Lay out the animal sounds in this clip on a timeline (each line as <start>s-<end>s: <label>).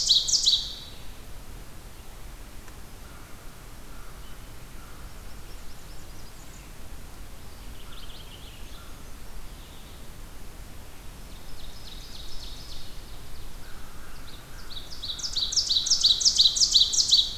0.0s-0.8s: Ovenbird (Seiurus aurocapilla)
2.9s-9.1s: American Crow (Corvus brachyrhynchos)
4.0s-10.2s: Red-eyed Vireo (Vireo olivaceus)
4.9s-6.8s: Blackburnian Warbler (Setophaga fusca)
7.4s-9.0s: Purple Finch (Haemorhous purpureus)
11.0s-13.8s: Ovenbird (Seiurus aurocapilla)
13.5s-16.3s: American Crow (Corvus brachyrhynchos)
14.1s-17.4s: Ovenbird (Seiurus aurocapilla)